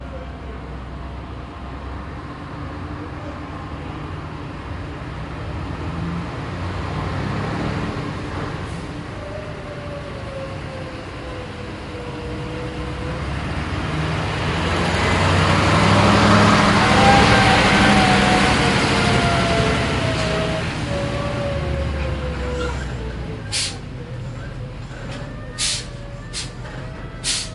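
The sound of a truck with a combustion engine in the background. 4.6 - 9.0
A truck drives past with the sound of a combustion engine. 12.7 - 23.4
A truck is hissing. 23.5 - 23.7
A truck is hissing. 25.6 - 26.5
A truck is hissing. 27.2 - 27.5

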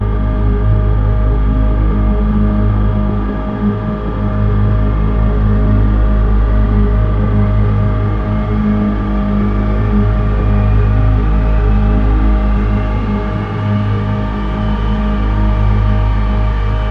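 An abstract synthetic mechanical sound with a rising pitch. 0.0 - 16.9

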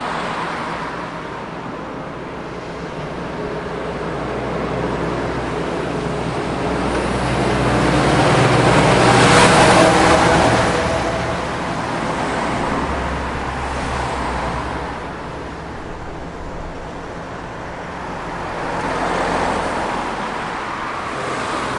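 Cars driving on a busy street. 0.0 - 21.8
A truck passes by loudly and drives into the distance. 5.7 - 12.2

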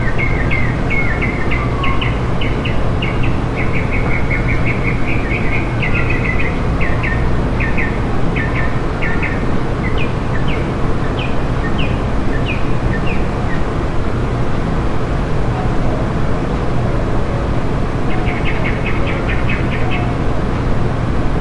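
Two birds chirp repeatedly in a park. 0.0 - 13.9
A bird chirps repeatedly in the distance. 18.1 - 20.1

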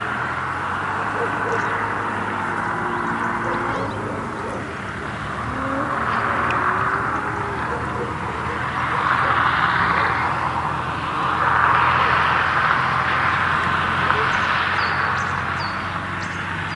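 Distant vehicle sounds vary in volume continuously in the countryside. 0.0 - 16.7
Distant, muffled cowbells ringing rhythmically and melodically. 1.1 - 1.7
Distant, muffled cowbells ringing rhythmically and melodically. 3.3 - 5.2
A cow moos continuously in the distance. 5.3 - 7.7
Distant, muffled cowbells ringing rhythmically and melodically. 7.6 - 10.3
Distant muffled cowbells ringing melodically. 14.0 - 14.5
Birds chirping melodically in the distance. 14.3 - 16.7

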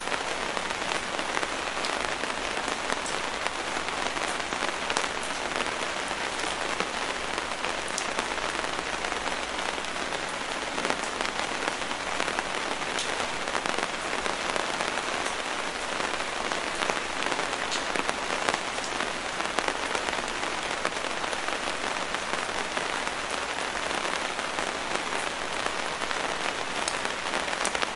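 Light raindrops fall on a fabric awning. 0.0 - 28.0

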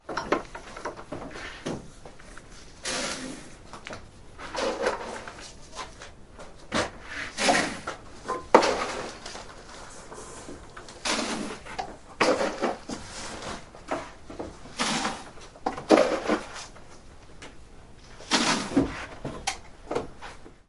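Sounds of feeding using an iron container. 0.0 - 20.7

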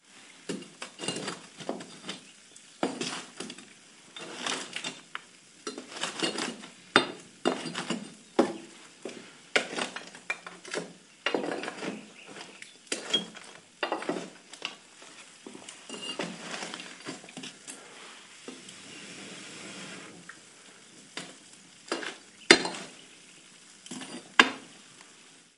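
A shovel scoops something in a fireplace, creating a slight friction sound. 0.4 - 1.7
A shovel scoops something in a fireplace, creating a slight friction sound. 2.7 - 5.2
A shovel scooping ash in a fireplace creates a slight friction sound. 5.8 - 6.7
Fireplace tools hitting each other repeatedly with abrupt sounds. 6.8 - 7.4
Wood pieces in a fireplace hit each other, creating faint thuds. 7.4 - 8.6
A man breathes quietly while arranging a fireplace. 8.9 - 9.4
A shovel scooping on a fireplace creates an abrupt friction sound. 9.4 - 10.9
A shovel scoops something on a fireplace, creating a friction sound. 11.2 - 12.1
Metallic clinking sounds from a fireplace. 12.7 - 13.4
A shovel scoops something on a fireplace, creating a friction sound. 13.8 - 14.8
A faint ceramic friction sound from a furnace in a fireplace. 15.9 - 16.8
A man breathes softly while arranging a fireplace. 17.1 - 18.3
A man is breathing softly while arranging a fireplace. 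20.8 - 21.5
A shovel scoops ash in a fireplace, creating an abrupt, faint friction sound. 21.8 - 22.2
Fireplace tools hitting each other repeatedly with abrupt sounds. 22.4 - 22.9
Fireplace tools hitting each other repeatedly with abrupt sounds. 24.3 - 24.8

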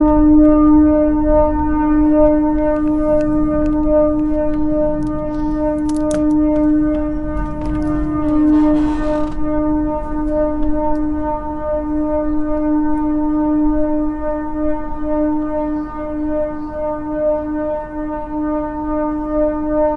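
A loud horn sounds and a door creaks. 0.0 - 20.0

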